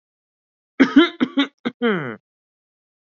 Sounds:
Throat clearing